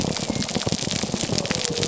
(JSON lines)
{"label": "biophony", "recorder": "SoundTrap 300"}